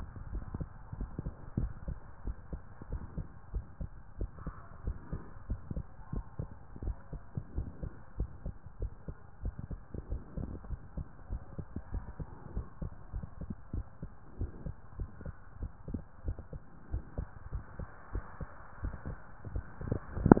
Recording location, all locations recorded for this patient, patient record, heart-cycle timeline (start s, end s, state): tricuspid valve (TV)
aortic valve (AV)+pulmonary valve (PV)+tricuspid valve (TV)+mitral valve (MV)
#Age: Child
#Sex: Male
#Height: 125.0 cm
#Weight: 36.1 kg
#Pregnancy status: False
#Murmur: Present
#Murmur locations: pulmonary valve (PV)+tricuspid valve (TV)
#Most audible location: pulmonary valve (PV)
#Systolic murmur timing: Early-systolic
#Systolic murmur shape: Plateau
#Systolic murmur grading: I/VI
#Systolic murmur pitch: Low
#Systolic murmur quality: Blowing
#Diastolic murmur timing: nan
#Diastolic murmur shape: nan
#Diastolic murmur grading: nan
#Diastolic murmur pitch: nan
#Diastolic murmur quality: nan
#Outcome: Abnormal
#Campaign: 2015 screening campaign
0.00	1.80	unannotated
1.80	1.84	systole
1.84	1.98	S2
1.98	2.24	diastole
2.24	2.36	S1
2.36	2.50	systole
2.50	2.60	S2
2.60	2.90	diastole
2.90	3.02	S1
3.02	3.14	systole
3.14	3.26	S2
3.26	3.53	diastole
3.53	3.66	S1
3.66	3.79	systole
3.79	3.91	S2
3.91	4.18	diastole
4.18	4.30	S1
4.30	4.42	systole
4.42	4.54	S2
4.54	4.84	diastole
4.84	4.98	S1
4.98	5.10	systole
5.10	5.20	S2
5.20	5.44	diastole
5.44	5.62	S1
5.62	5.70	systole
5.70	5.84	S2
5.84	6.12	diastole
6.12	6.24	S1
6.24	6.38	systole
6.38	6.50	S2
6.50	6.80	diastole
6.80	6.96	S1
6.96	7.12	systole
7.12	7.22	S2
7.22	7.54	diastole
7.54	7.68	S1
7.68	7.80	systole
7.80	7.90	S2
7.90	8.18	diastole
8.18	8.29	S1
8.29	8.44	systole
8.44	8.56	S2
8.56	8.80	diastole
8.80	8.91	S1
8.91	9.06	systole
9.06	9.16	S2
9.16	9.41	diastole
9.41	9.56	S1
9.56	9.70	systole
9.70	9.78	S2
9.78	10.08	diastole
10.08	10.20	S1
10.20	10.36	systole
10.36	10.48	S2
10.48	10.70	diastole
10.70	10.80	S1
10.80	10.94	systole
10.94	11.06	S2
11.06	11.30	diastole
11.30	11.42	S1
11.42	11.56	systole
11.56	11.66	S2
11.66	11.92	diastole
11.92	12.06	S1
12.06	12.18	systole
12.18	12.28	S2
12.28	12.54	diastole
12.54	12.68	S1
12.68	12.80	systole
12.80	12.90	S2
12.90	13.14	diastole
13.14	13.28	S1
13.28	13.40	systole
13.40	13.50	S2
13.50	13.73	diastole
13.73	13.86	S1
13.86	14.00	systole
14.00	14.12	S2
14.12	14.38	diastole
14.38	14.52	S1
14.52	14.64	systole
14.64	14.74	S2
14.74	14.98	diastole
14.98	15.08	S1
15.08	15.20	systole
15.20	15.34	S2
15.34	15.60	diastole
15.60	15.72	S1
15.72	15.90	systole
15.90	16.02	S2
16.02	16.26	diastole
16.26	16.38	S1
16.38	16.52	systole
16.52	16.62	S2
16.62	16.90	diastole
16.90	17.04	S1
17.04	17.16	systole
17.16	17.26	S2
17.26	17.52	diastole
17.52	17.66	S1
17.66	17.80	systole
17.80	17.88	S2
17.88	18.14	diastole
18.14	18.24	S1
18.24	18.40	systole
18.40	18.50	S2
18.50	18.78	diastole
18.78	18.94	S1
18.94	19.06	systole
19.06	19.18	S2
19.18	19.48	diastole
19.48	20.40	unannotated